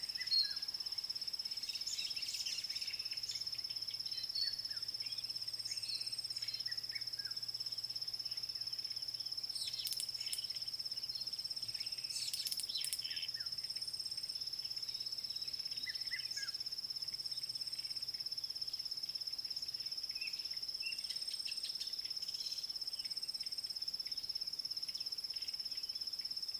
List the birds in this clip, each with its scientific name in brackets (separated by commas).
White-browed Sparrow-Weaver (Plocepasser mahali), White Helmetshrike (Prionops plumatus), Red-chested Cuckoo (Cuculus solitarius)